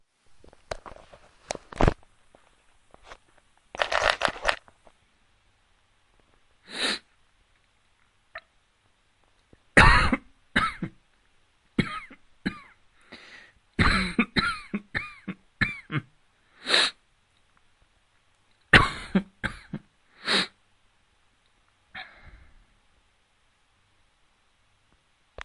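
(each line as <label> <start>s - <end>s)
A steady, rhythmic clicking sound continues. 0.1s - 6.7s
A sick man coughs regularly, sniffs, and swallows softly. 6.7s - 22.3s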